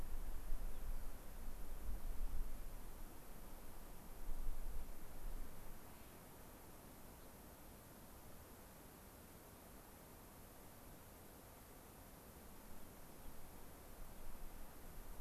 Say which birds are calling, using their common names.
Rock Wren, Clark's Nutcracker, Gray-crowned Rosy-Finch